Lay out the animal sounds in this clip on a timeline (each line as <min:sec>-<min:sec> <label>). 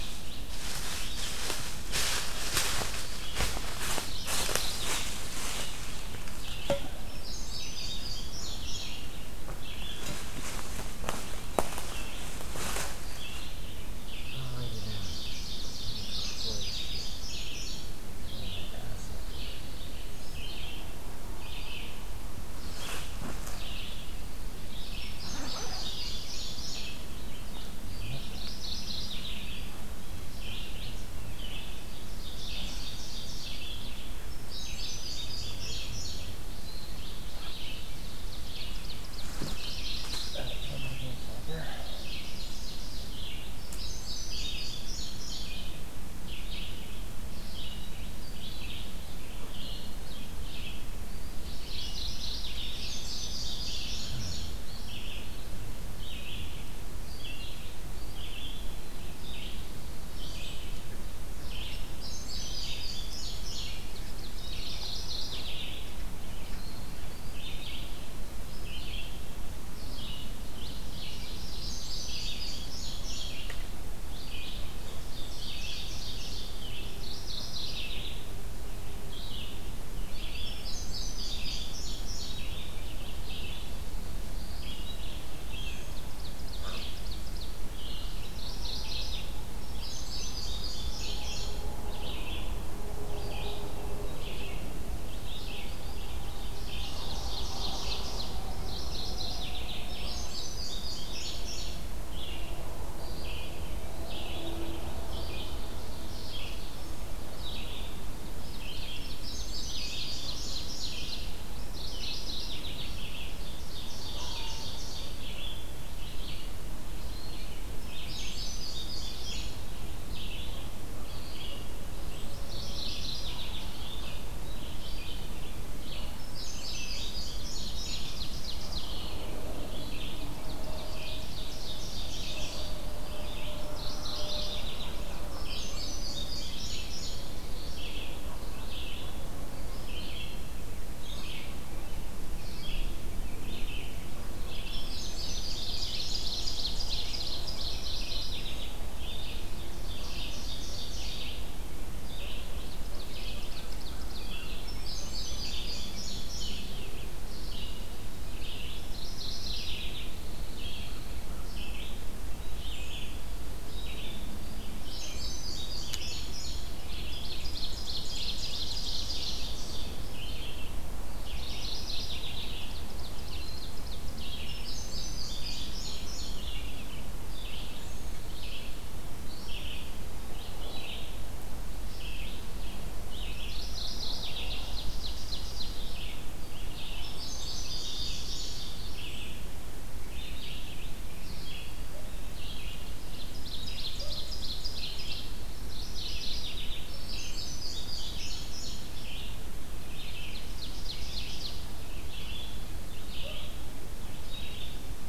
0:00.0-1:49.2 Red-eyed Vireo (Vireo olivaceus)
0:03.9-0:05.3 Mourning Warbler (Geothlypis philadelphia)
0:07.0-0:09.2 Indigo Bunting (Passerina cyanea)
0:14.7-0:16.4 Ovenbird (Seiurus aurocapilla)
0:15.8-0:17.2 Mourning Warbler (Geothlypis philadelphia)
0:16.1-0:18.0 Indigo Bunting (Passerina cyanea)
0:18.7-0:20.1 Pine Warbler (Setophaga pinus)
0:25.0-0:27.2 Indigo Bunting (Passerina cyanea)
0:28.2-0:29.8 Mourning Warbler (Geothlypis philadelphia)
0:32.1-0:33.8 Ovenbird (Seiurus aurocapilla)
0:34.2-0:36.4 Indigo Bunting (Passerina cyanea)
0:37.8-0:39.6 Ovenbird (Seiurus aurocapilla)
0:39.5-0:40.9 Mourning Warbler (Geothlypis philadelphia)
0:41.7-0:43.4 Ovenbird (Seiurus aurocapilla)
0:43.6-0:45.8 Indigo Bunting (Passerina cyanea)
0:51.5-0:52.8 Mourning Warbler (Geothlypis philadelphia)
0:52.8-0:54.7 Indigo Bunting (Passerina cyanea)
0:52.8-0:54.6 Ovenbird (Seiurus aurocapilla)
1:01.9-1:04.0 Indigo Bunting (Passerina cyanea)
1:04.2-1:06.0 Mourning Warbler (Geothlypis philadelphia)
1:10.7-1:12.1 Ovenbird (Seiurus aurocapilla)
1:11.5-1:13.6 Indigo Bunting (Passerina cyanea)
1:15.0-1:16.8 Ovenbird (Seiurus aurocapilla)
1:16.9-1:18.4 Mourning Warbler (Geothlypis philadelphia)
1:20.4-1:22.7 Indigo Bunting (Passerina cyanea)
1:25.7-1:27.6 Ovenbird (Seiurus aurocapilla)
1:28.2-1:29.4 Mourning Warbler (Geothlypis philadelphia)
1:29.5-1:31.7 Indigo Bunting (Passerina cyanea)
1:36.6-1:38.4 Ovenbird (Seiurus aurocapilla)
1:38.6-1:40.0 Mourning Warbler (Geothlypis philadelphia)
1:39.8-1:42.0 Indigo Bunting (Passerina cyanea)
1:48.8-1:50.9 Indigo Bunting (Passerina cyanea)
1:49.4-1:51.3 Ovenbird (Seiurus aurocapilla)
1:49.5-2:47.4 Red-eyed Vireo (Vireo olivaceus)
1:51.6-1:53.3 Mourning Warbler (Geothlypis philadelphia)
1:53.7-1:55.4 Ovenbird (Seiurus aurocapilla)
1:57.8-1:59.7 Indigo Bunting (Passerina cyanea)
2:02.4-2:04.0 Mourning Warbler (Geothlypis philadelphia)
2:06.0-2:08.2 Indigo Bunting (Passerina cyanea)
2:07.5-2:09.2 Ovenbird (Seiurus aurocapilla)
2:10.1-2:12.0 Ovenbird (Seiurus aurocapilla)
2:11.2-2:12.7 Indigo Bunting (Passerina cyanea)
2:13.6-2:15.0 Mourning Warbler (Geothlypis philadelphia)
2:15.1-2:17.5 Indigo Bunting (Passerina cyanea)
2:24.5-2:26.1 Indigo Bunting (Passerina cyanea)
2:25.0-2:27.1 Ovenbird (Seiurus aurocapilla)
2:27.4-2:28.7 Mourning Warbler (Geothlypis philadelphia)
2:29.6-2:31.5 Ovenbird (Seiurus aurocapilla)
2:32.6-2:34.3 Ovenbird (Seiurus aurocapilla)
2:34.6-2:36.9 Indigo Bunting (Passerina cyanea)
2:38.9-2:40.1 Mourning Warbler (Geothlypis philadelphia)
2:39.8-2:41.3 Pine Warbler (Setophaga pinus)
2:44.7-2:46.8 Indigo Bunting (Passerina cyanea)
2:47.1-2:49.9 Ovenbird (Seiurus aurocapilla)
2:48.2-3:25.1 Red-eyed Vireo (Vireo olivaceus)
2:51.2-2:52.7 Mourning Warbler (Geothlypis philadelphia)
2:52.5-2:54.2 Ovenbird (Seiurus aurocapilla)
2:54.4-2:56.7 Indigo Bunting (Passerina cyanea)
3:03.3-3:04.7 Mourning Warbler (Geothlypis philadelphia)
3:04.5-3:06.1 Ovenbird (Seiurus aurocapilla)
3:06.6-3:08.8 Indigo Bunting (Passerina cyanea)
3:13.3-3:15.3 Ovenbird (Seiurus aurocapilla)
3:15.6-3:17.0 Mourning Warbler (Geothlypis philadelphia)
3:16.7-3:19.4 Indigo Bunting (Passerina cyanea)
3:19.8-3:21.7 Ovenbird (Seiurus aurocapilla)